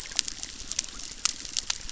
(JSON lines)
{"label": "biophony, chorus", "recorder": "SoundTrap 600"}